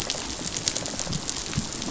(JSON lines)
{"label": "biophony, rattle response", "recorder": "SoundTrap 500"}